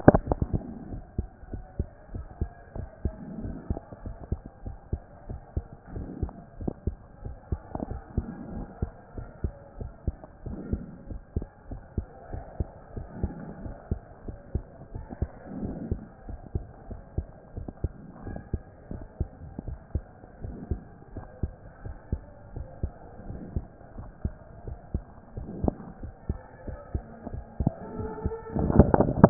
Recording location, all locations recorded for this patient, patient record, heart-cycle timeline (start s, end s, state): mitral valve (MV)
aortic valve (AV)+pulmonary valve (PV)+tricuspid valve (TV)+mitral valve (MV)
#Age: Child
#Sex: Male
#Height: 134.0 cm
#Weight: 28.5 kg
#Pregnancy status: False
#Murmur: Absent
#Murmur locations: nan
#Most audible location: nan
#Systolic murmur timing: nan
#Systolic murmur shape: nan
#Systolic murmur grading: nan
#Systolic murmur pitch: nan
#Systolic murmur quality: nan
#Diastolic murmur timing: nan
#Diastolic murmur shape: nan
#Diastolic murmur grading: nan
#Diastolic murmur pitch: nan
#Diastolic murmur quality: nan
#Outcome: Normal
#Campaign: 2014 screening campaign
0.00	1.33	unannotated
1.33	1.52	diastole
1.52	1.62	S1
1.62	1.78	systole
1.78	1.88	S2
1.88	2.14	diastole
2.14	2.26	S1
2.26	2.40	systole
2.40	2.50	S2
2.50	2.76	diastole
2.76	2.88	S1
2.88	3.04	systole
3.04	3.14	S2
3.14	3.42	diastole
3.42	3.54	S1
3.54	3.68	systole
3.68	3.80	S2
3.80	4.04	diastole
4.04	4.16	S1
4.16	4.30	systole
4.30	4.40	S2
4.40	4.64	diastole
4.64	4.76	S1
4.76	4.92	systole
4.92	5.02	S2
5.02	5.28	diastole
5.28	5.40	S1
5.40	5.56	systole
5.56	5.64	S2
5.64	5.94	diastole
5.94	6.08	S1
6.08	6.20	systole
6.20	6.30	S2
6.30	6.60	diastole
6.60	6.72	S1
6.72	6.86	systole
6.86	6.96	S2
6.96	7.24	diastole
7.24	7.36	S1
7.36	7.50	systole
7.50	7.60	S2
7.60	7.88	diastole
7.88	8.00	S1
8.00	8.16	systole
8.16	8.26	S2
8.26	8.54	diastole
8.54	8.66	S1
8.66	8.80	systole
8.80	8.92	S2
8.92	9.16	diastole
9.16	9.28	S1
9.28	9.42	systole
9.42	9.52	S2
9.52	9.80	diastole
9.80	9.90	S1
9.90	10.06	systole
10.06	10.16	S2
10.16	10.46	diastole
10.46	10.58	S1
10.58	10.70	systole
10.70	10.82	S2
10.82	11.10	diastole
11.10	11.20	S1
11.20	11.36	systole
11.36	11.46	S2
11.46	11.70	diastole
11.70	11.80	S1
11.80	11.96	systole
11.96	12.06	S2
12.06	12.32	diastole
12.32	12.44	S1
12.44	12.58	systole
12.58	12.68	S2
12.68	12.96	diastole
12.96	13.06	S1
13.06	13.22	systole
13.22	13.32	S2
13.32	13.62	diastole
13.62	13.74	S1
13.74	13.90	systole
13.90	14.00	S2
14.00	14.26	diastole
14.26	14.36	S1
14.36	14.54	systole
14.54	14.64	S2
14.64	14.94	diastole
14.94	15.04	S1
15.04	15.20	systole
15.20	15.30	S2
15.30	15.60	diastole
15.60	15.74	S1
15.74	15.90	systole
15.90	16.00	S2
16.00	16.28	diastole
16.28	16.40	S1
16.40	16.54	systole
16.54	16.64	S2
16.64	16.88	diastole
16.88	17.00	S1
17.00	17.16	systole
17.16	17.26	S2
17.26	17.56	diastole
17.56	17.68	S1
17.68	17.82	systole
17.82	17.92	S2
17.92	18.26	diastole
18.26	18.38	S1
18.38	18.52	systole
18.52	18.62	S2
18.62	18.90	diastole
18.90	19.02	S1
19.02	19.18	systole
19.18	19.28	S2
19.28	19.66	diastole
19.66	19.78	S1
19.78	19.94	systole
19.94	20.04	S2
20.04	20.44	diastole
20.44	20.56	S1
20.56	20.70	systole
20.70	20.82	S2
20.82	21.14	diastole
21.14	21.26	S1
21.26	21.42	systole
21.42	21.52	S2
21.52	21.84	diastole
21.84	21.96	S1
21.96	22.12	systole
22.12	22.22	S2
22.22	22.54	diastole
22.54	22.66	S1
22.66	22.82	systole
22.82	22.92	S2
22.92	23.28	diastole
23.28	23.40	S1
23.40	23.54	systole
23.54	23.66	S2
23.66	23.96	diastole
23.96	24.08	S1
24.08	24.24	systole
24.24	24.34	S2
24.34	24.66	diastole
24.66	24.78	S1
24.78	24.94	systole
24.94	25.04	S2
25.04	25.36	diastole
25.36	25.48	S1
25.48	25.62	systole
25.62	25.74	S2
25.74	26.02	diastole
26.02	26.12	S1
26.12	26.28	systole
26.28	26.40	S2
26.40	26.66	diastole
26.66	26.78	S1
26.78	26.94	systole
26.94	27.02	S2
27.02	27.32	diastole
27.32	29.30	unannotated